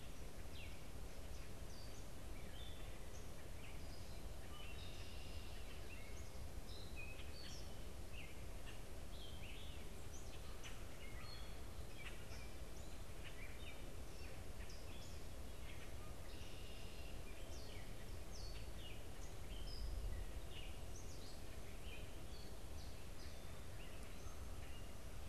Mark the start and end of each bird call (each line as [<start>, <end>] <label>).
[0.00, 25.29] Gray Catbird (Dumetella carolinensis)
[4.79, 5.69] Red-winged Blackbird (Agelaius phoeniceus)
[16.29, 17.19] Red-winged Blackbird (Agelaius phoeniceus)